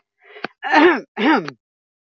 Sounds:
Throat clearing